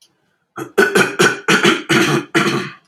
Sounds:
Throat clearing